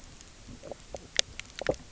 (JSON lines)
{"label": "biophony, knock croak", "recorder": "SoundTrap 300"}